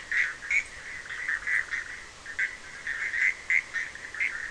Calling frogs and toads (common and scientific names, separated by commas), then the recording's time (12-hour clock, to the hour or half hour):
Bischoff's tree frog (Boana bischoffi)
11:30pm